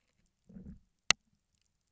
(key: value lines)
label: biophony, low growl
recorder: SoundTrap 300